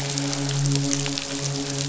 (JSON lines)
{"label": "biophony, midshipman", "recorder": "SoundTrap 500"}